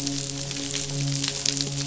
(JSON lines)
{"label": "biophony, midshipman", "recorder": "SoundTrap 500"}